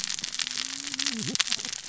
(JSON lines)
{"label": "biophony, cascading saw", "recorder": "SoundTrap 600 or HydroMoth"}